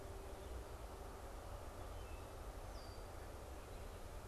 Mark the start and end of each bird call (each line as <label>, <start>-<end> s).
Red-winged Blackbird (Agelaius phoeniceus), 2.6-3.1 s